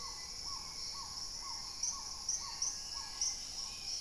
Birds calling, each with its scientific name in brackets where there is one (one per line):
Black-tailed Trogon (Trogon melanurus)
Dusky-throated Antshrike (Thamnomanes ardesiacus)
Hauxwell's Thrush (Turdus hauxwelli)
Dusky-capped Greenlet (Pachysylvia hypoxantha)
Gray-fronted Dove (Leptotila rufaxilla)